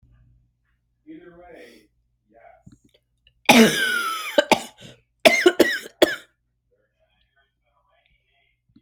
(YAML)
expert_labels:
- quality: ok
  cough_type: dry
  dyspnea: false
  wheezing: true
  stridor: false
  choking: false
  congestion: false
  nothing: false
  diagnosis: obstructive lung disease
  severity: mild
- quality: ok
  cough_type: dry
  dyspnea: false
  wheezing: false
  stridor: true
  choking: false
  congestion: false
  nothing: false
  diagnosis: obstructive lung disease
  severity: mild
- quality: good
  cough_type: unknown
  dyspnea: false
  wheezing: false
  stridor: false
  choking: false
  congestion: false
  nothing: true
  diagnosis: upper respiratory tract infection
  severity: mild
- quality: good
  cough_type: dry
  dyspnea: false
  wheezing: false
  stridor: false
  choking: false
  congestion: false
  nothing: true
  diagnosis: upper respiratory tract infection
  severity: mild
age: 36
gender: female
respiratory_condition: false
fever_muscle_pain: true
status: symptomatic